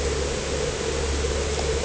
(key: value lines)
label: anthrophony, boat engine
recorder: HydroMoth